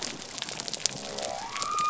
{"label": "biophony", "recorder": "SoundTrap 300"}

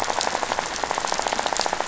{"label": "biophony, rattle", "recorder": "SoundTrap 500"}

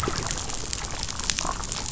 {"label": "biophony, damselfish", "recorder": "SoundTrap 500"}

